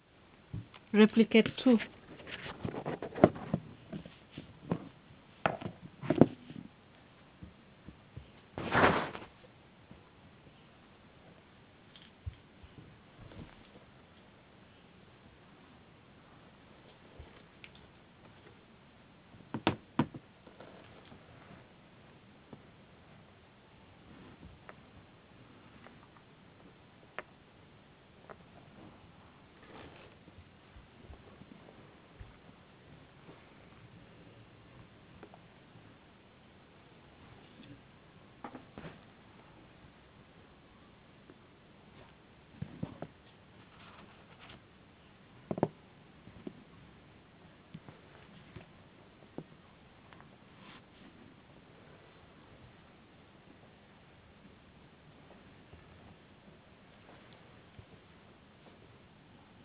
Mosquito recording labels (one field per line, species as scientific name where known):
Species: no mosquito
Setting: insect culture